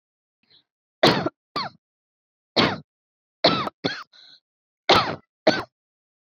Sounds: Cough